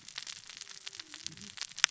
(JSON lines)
{"label": "biophony, cascading saw", "recorder": "SoundTrap 600 or HydroMoth"}